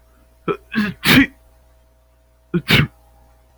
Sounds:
Sneeze